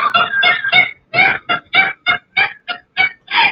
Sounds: Laughter